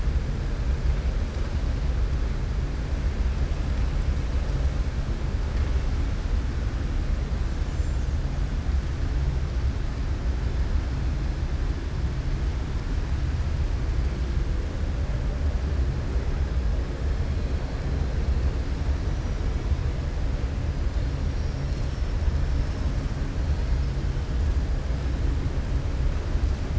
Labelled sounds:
7.6	8.1	killer whale, southern resident, 6.1 to 7.5 kHz

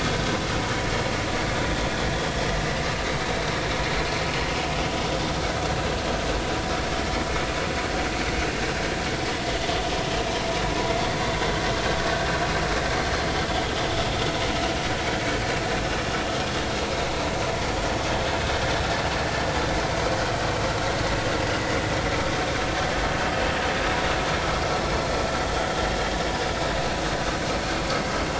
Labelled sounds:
18.0	18.2	vessel noise, 3.1 to 3.4 kHz

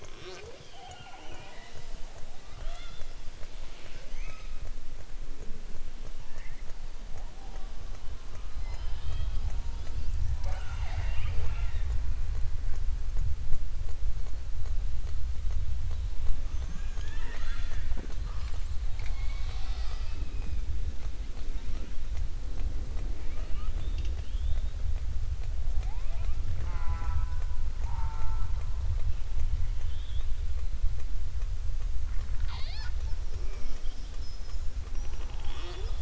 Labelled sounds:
9.6	11.9	killer whale, southern resident, 0.41 to 7.7 kHz

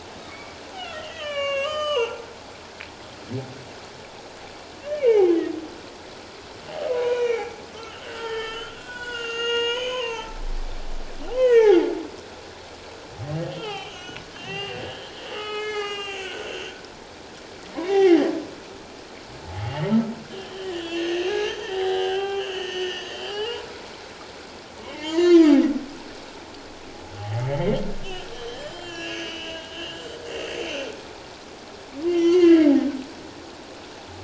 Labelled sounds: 0.3	2.2	humpback whale, 0.84 to 7.4 kHz
4.8	5.6	humpback whale, 0.78 to 3.0 kHz
6.9	7.5	humpback whale, 0.91 to 5.9 kHz
8.0	10.4	humpback whale, 0.81 to 7.4 kHz
11.3	11.8	humpback whale, 1.6 to 6.6 kHz
13.3	14.8	humpback whale, 1.1 to 6.3 kHz
15.3	16.7	humpback whale, 1.2 to 7.9 kHz
17.8	18.3	humpback whale, 0.78 to 3.8 kHz
19.4	24.0	humpback whale, 0.78 to 6.5 kHz
24.8	25.5	humpback whale, 0.84 to 3.2 kHz
27.2	27.7	humpback whale, 0.78 to 3.2 kHz
28.0	31.1	humpback whale, 1.4 to 7.1 kHz
32.1	32.7	humpback whale, 0.97 to 6.7 kHz

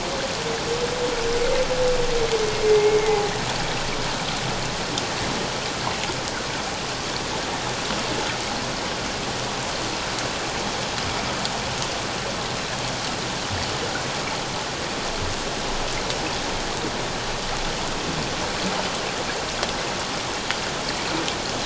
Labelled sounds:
2.7	3.3	humpback whale, 0.78 to 2.2 kHz

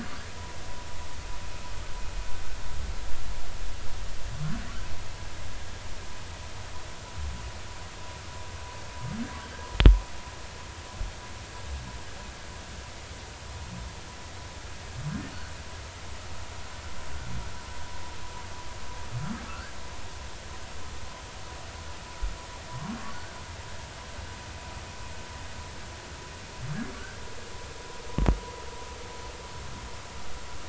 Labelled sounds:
19.5	19.8	humpback whale, 1.2 to 1.7 kHz
22.7	23.0	humpback whale, 0.96 to 1.2 kHz

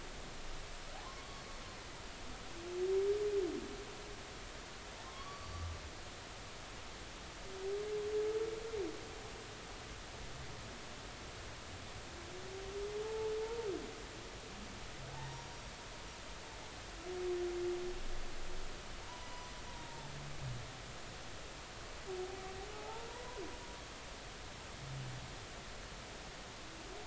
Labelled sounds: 1.0	1.4	humpback whale, 0.96 to 1.2 kHz
5.0	5.7	humpback whale, 0.99 to 4.6 kHz
13.0	13.3	humpback whale, 0.83 to 0.93 kHz
15.1	15.5	humpback whale, 0.83 to 1.1 kHz
19.1	20.1	humpback whale, 0.83 to 1.1 kHz
22.7	23.4	humpback whale, 0.80 to 1.1 kHz

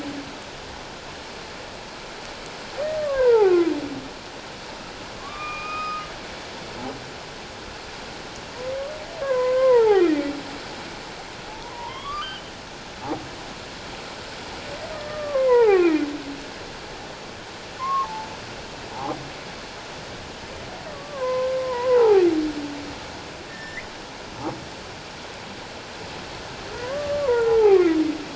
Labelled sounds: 3.0	3.7	humpback whale, 0.78 to 1.7 kHz
5.2	6.0	humpback whale, 1.0 to 5.1 kHz
9.2	10.4	humpback whale, 0.78 to 2.5 kHz
11.5	12.4	humpback whale, 0.78 to 4.9 kHz
14.9	16.0	humpback whale, 0.78 to 2.6 kHz
17.8	18.3	humpback whale, 0.81 to 1.2 kHz
18.9	19.2	humpback whale, 0.78 to 1.1 kHz
20.9	22.2	humpback whale, 0.78 to 1.5 kHz
23.5	23.9	humpback whale, 1.7 to 2.2 kHz
26.7	27.9	humpback whale, 0.78 to 2.0 kHz

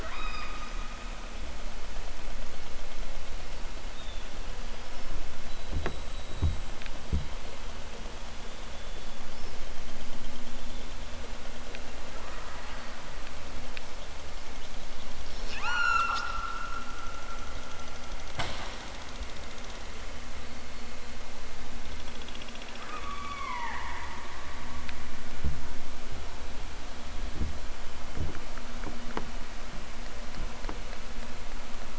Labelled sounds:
0.0	0.7	killer whale, southern Alaska resident, 0.60 to 8.0 kHz
15.4	16.3	killer whale, southern Alaska resident, 0.41 to 8.0 kHz
22.8	23.9	killer whale, southern Alaska resident, 0.46 to 5.4 kHz

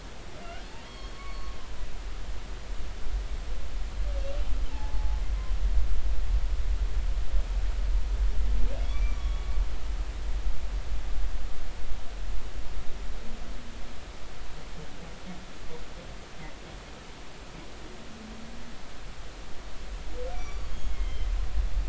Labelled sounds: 0.8	1.5	humpback whale, 0.99 to 4.4 kHz
4.7	5.2	humpback whale, 0.80 to 0.96 kHz
8.8	9.6	humpback whale, 1.1 to 5.9 kHz
20.3	21.3	humpback whale, 2.0 to 5.9 kHz

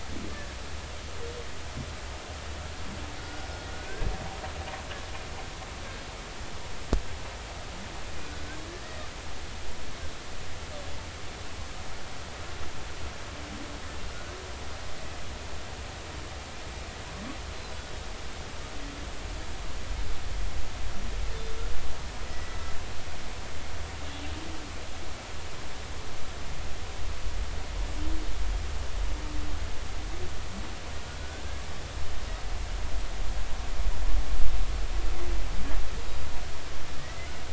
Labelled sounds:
3.2	4.1	humpback whale, 1.4 to 5.3 kHz
8.2	9.0	humpback whale, 1.4 to 2.0 kHz
22.2	22.8	humpback whale, 1.9 to 5.3 kHz
36.0	36.3	humpback whale, 4.7 to 4.8 kHz

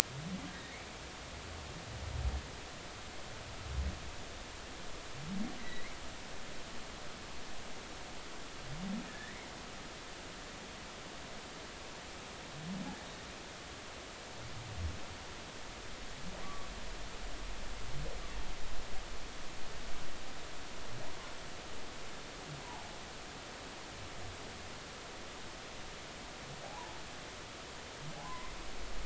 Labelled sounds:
0.5	0.8	humpback whale, 1.6 to 2.0 kHz
5.6	6.0	humpback whale, 1.9 to 2.3 kHz
9.1	9.5	humpback whale, 1.6 to 2.3 kHz
16.4	16.7	humpback whale, 1.1 to 1.2 kHz
26.6	27.0	humpback whale, 0.80 to 1.1 kHz
28.2	28.5	humpback whale, 0.96 to 1.1 kHz

